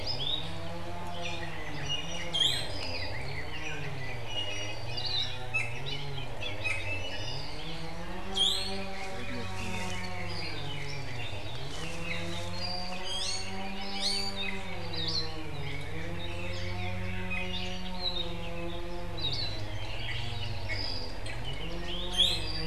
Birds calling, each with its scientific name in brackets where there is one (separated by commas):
Iiwi (Drepanis coccinea), Red-billed Leiothrix (Leiothrix lutea), Hawaii Akepa (Loxops coccineus), Apapane (Himatione sanguinea), Hawaii Creeper (Loxops mana)